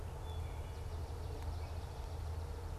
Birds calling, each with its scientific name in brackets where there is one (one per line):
Wood Thrush (Hylocichla mustelina)
Swamp Sparrow (Melospiza georgiana)